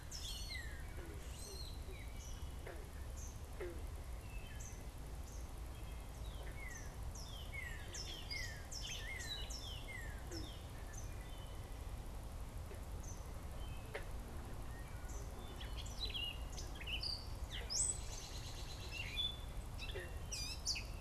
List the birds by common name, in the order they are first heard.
Northern Cardinal, Gray Catbird, Eastern Kingbird, American Robin